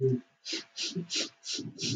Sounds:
Sniff